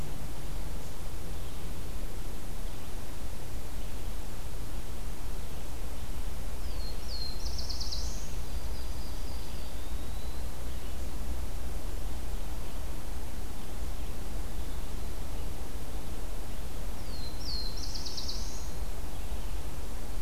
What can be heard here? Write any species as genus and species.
Setophaga caerulescens, Setophaga coronata, Contopus virens